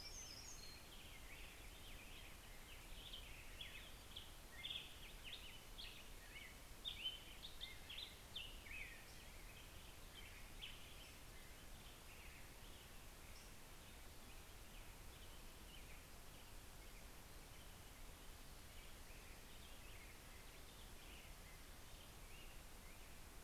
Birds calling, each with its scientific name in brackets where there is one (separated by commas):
Black-headed Grosbeak (Pheucticus melanocephalus), American Robin (Turdus migratorius), Hermit Warbler (Setophaga occidentalis)